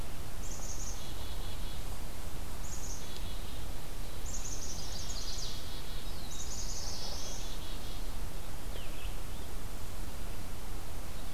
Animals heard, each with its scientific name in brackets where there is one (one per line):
Rose-breasted Grosbeak (Pheucticus ludovicianus)
Black-capped Chickadee (Poecile atricapillus)
Black-throated Blue Warbler (Setophaga caerulescens)
Chestnut-sided Warbler (Setophaga pensylvanica)